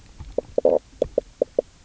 {"label": "biophony, knock croak", "recorder": "SoundTrap 300"}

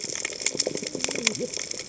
{"label": "biophony, cascading saw", "recorder": "HydroMoth"}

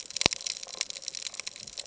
{"label": "ambient", "recorder": "HydroMoth"}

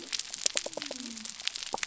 {"label": "biophony", "recorder": "SoundTrap 300"}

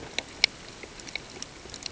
{"label": "ambient", "recorder": "HydroMoth"}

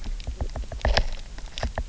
{"label": "biophony, knock", "recorder": "SoundTrap 300"}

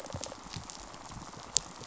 {"label": "biophony, rattle response", "recorder": "SoundTrap 500"}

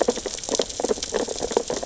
{"label": "biophony, sea urchins (Echinidae)", "recorder": "SoundTrap 600 or HydroMoth"}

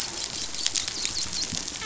{"label": "biophony, dolphin", "recorder": "SoundTrap 500"}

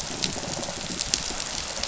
{"label": "biophony", "recorder": "SoundTrap 500"}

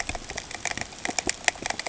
{"label": "ambient", "recorder": "HydroMoth"}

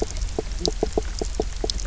{"label": "biophony, knock croak", "recorder": "SoundTrap 300"}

